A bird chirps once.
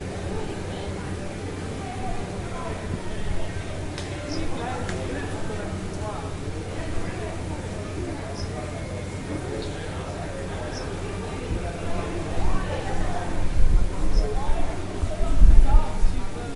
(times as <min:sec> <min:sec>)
0:04.2 0:04.5, 0:08.3 0:08.6, 0:10.6 0:11.0, 0:14.0 0:14.4